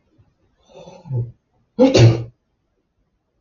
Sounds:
Sneeze